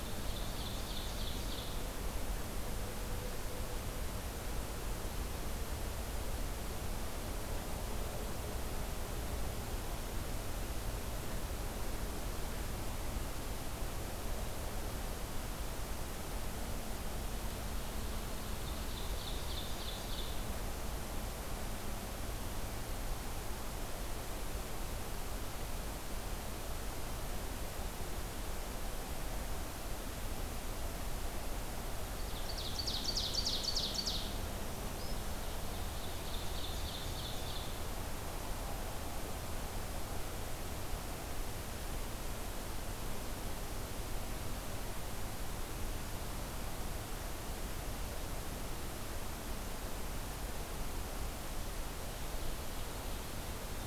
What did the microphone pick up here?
Ovenbird, Black-throated Green Warbler